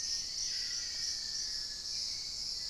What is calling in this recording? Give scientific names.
Formicarius analis, Thamnomanes ardesiacus, Lipaugus vociferans, Pachysylvia hypoxantha, Turdus hauxwelli